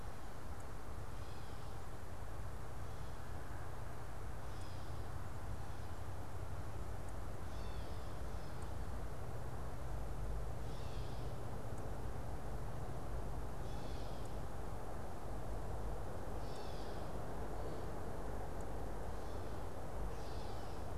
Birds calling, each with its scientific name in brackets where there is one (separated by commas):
Gray Catbird (Dumetella carolinensis)